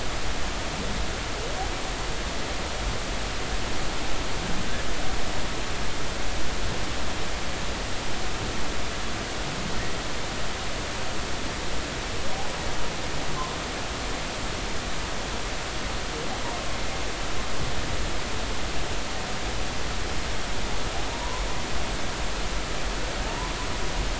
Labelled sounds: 21.1	21.5	humpback whale, 0.90 to 1.2 kHz
23.2	23.5	humpback whale, 0.80 to 1.1 kHz

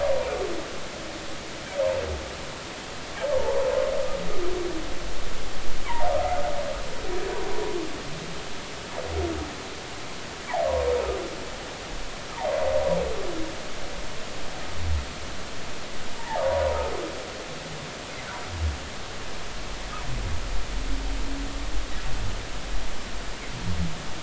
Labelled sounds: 3.3	3.7	humpback whale, 0.83 to 1.2 kHz
10.6	10.9	humpback whale, 0.90 to 1.1 kHz
16.4	16.9	humpback whale, 0.86 to 1.1 kHz

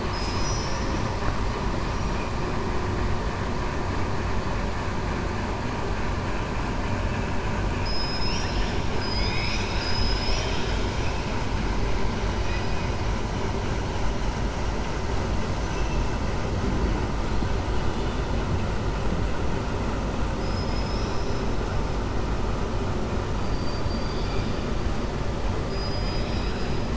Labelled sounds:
0.0	1.1	killer whale, 4.3 to 7.9 kHz
20.3	21.5	killer whale, 3.9 to 5.9 kHz
23.4	24.6	killer whale, 2.3 to 5.2 kHz
25.6	26.8	killer whale, 1.8 to 5.6 kHz

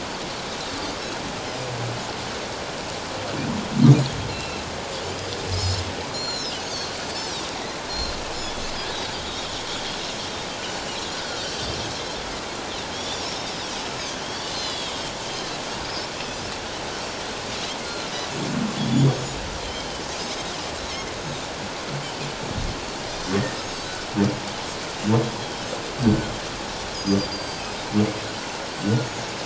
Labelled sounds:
4.3	4.7	Pacific white-sided dolphin, 2.5 to 4.2 kHz
5.5	7.4	Pacific white-sided dolphin, 3.8 to 8.0 kHz
7.9	8.1	Pacific white-sided dolphin, 4.0 to 4.3 kHz
8.9	9.1	Pacific white-sided dolphin, 3.5 to 3.9 kHz
11.4	12.5	Pacific white-sided dolphin, 1.9 to 7.9 kHz
12.9	13.4	Pacific white-sided dolphin, 3.1 to 7.0 kHz
14.2	15.0	Pacific white-sided dolphin, 3.1 to 6.3 kHz
15.3	16.1	Pacific white-sided dolphin, 3.9 to 5.6 kHz
17.8	18.1	Pacific white-sided dolphin, 1.3 to 4.4 kHz
18.9	19.2	Pacific white-sided dolphin, 3.2 to 3.6 kHz
20.2	20.4	Pacific white-sided dolphin, 4.9 to 5.3 kHz
23.6	23.9	Pacific white-sided dolphin, 5.0 to 7.9 kHz
26.0	26.3	Pacific white-sided dolphin, 1.4 to 7.8 kHz
26.9	27.6	Pacific white-sided dolphin, 4.5 to 6.4 kHz
28.8	29.1	Pacific white-sided dolphin, 1.4 to 1.5 kHz

